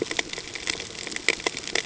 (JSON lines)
{"label": "ambient", "recorder": "HydroMoth"}